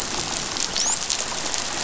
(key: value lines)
label: biophony, dolphin
recorder: SoundTrap 500